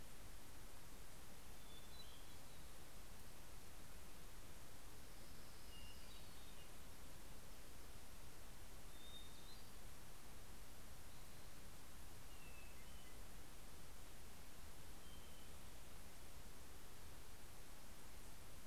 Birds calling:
Hermit Thrush (Catharus guttatus), Orange-crowned Warbler (Leiothlypis celata)

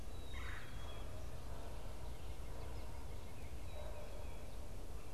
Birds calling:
Black-capped Chickadee (Poecile atricapillus), Red-bellied Woodpecker (Melanerpes carolinus)

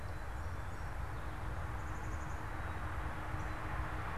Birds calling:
Black-capped Chickadee (Poecile atricapillus), Song Sparrow (Melospiza melodia), Northern Cardinal (Cardinalis cardinalis)

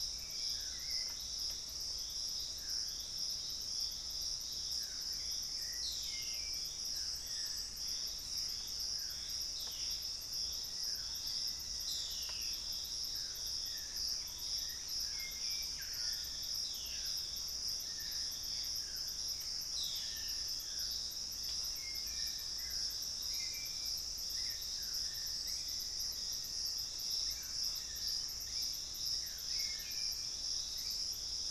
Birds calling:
Piratic Flycatcher (Legatus leucophaius), Thrush-like Wren (Campylorhynchus turdinus), White-throated Woodpecker (Piculus leucolaemus), Dusky-throated Antshrike (Thamnomanes ardesiacus), Black-spotted Bare-eye (Phlegopsis nigromaculata), White-bellied Tody-Tyrant (Hemitriccus griseipectus), Black-faced Antthrush (Formicarius analis), Cinnamon-rumped Foliage-gleaner (Philydor pyrrhodes), Hauxwell's Thrush (Turdus hauxwelli), Gray Antbird (Cercomacra cinerascens)

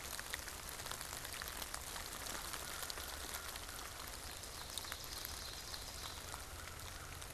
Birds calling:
Ovenbird (Seiurus aurocapilla)

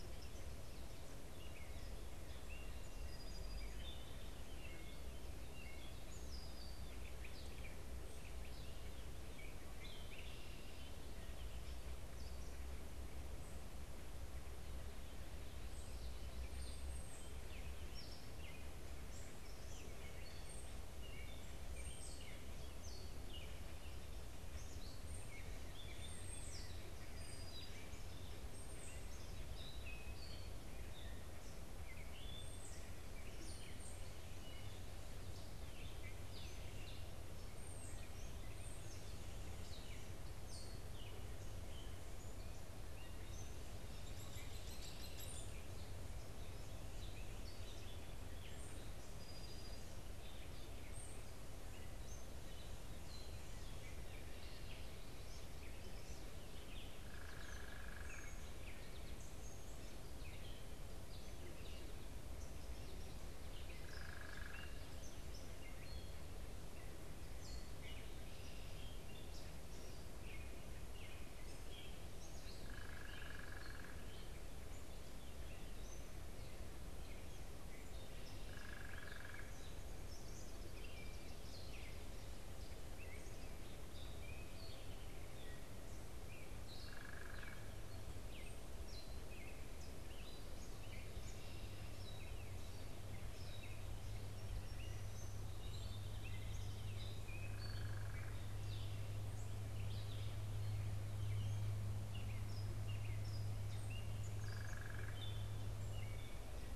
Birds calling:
Gray Catbird (Dumetella carolinensis), Eastern Kingbird (Tyrannus tyrannus), Hairy Woodpecker (Dryobates villosus), unidentified bird, Song Sparrow (Melospiza melodia), Red-winged Blackbird (Agelaius phoeniceus)

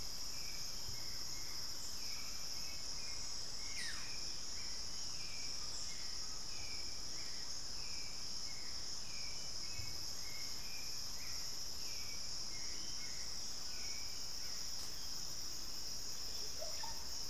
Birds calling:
unidentified bird, Collared Trogon (Trogon collaris), Buff-throated Woodcreeper (Xiphorhynchus guttatus), Hauxwell's Thrush (Turdus hauxwelli), Undulated Tinamou (Crypturellus undulatus), Russet-backed Oropendola (Psarocolius angustifrons)

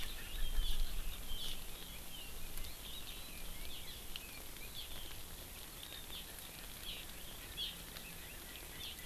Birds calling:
Erckel's Francolin (Pternistis erckelii), Eurasian Skylark (Alauda arvensis)

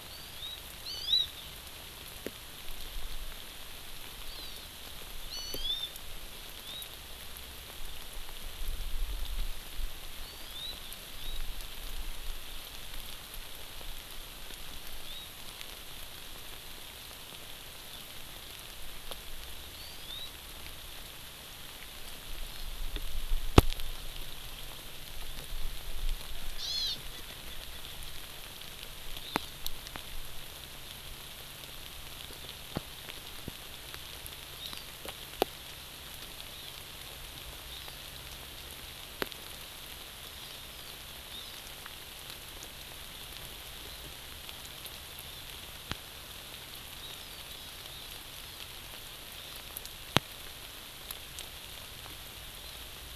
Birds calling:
Hawaii Amakihi (Chlorodrepanis virens), Erckel's Francolin (Pternistis erckelii)

